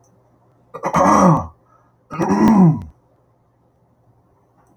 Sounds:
Throat clearing